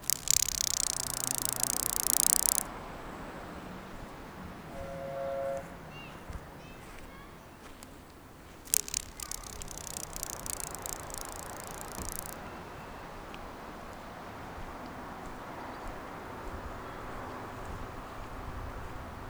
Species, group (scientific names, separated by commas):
Psophus stridulus, Orthoptera